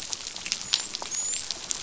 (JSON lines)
{"label": "biophony, dolphin", "recorder": "SoundTrap 500"}